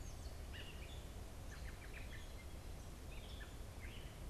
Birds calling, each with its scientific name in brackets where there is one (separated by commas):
Gray Catbird (Dumetella carolinensis), American Robin (Turdus migratorius)